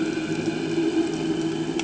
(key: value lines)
label: anthrophony, boat engine
recorder: HydroMoth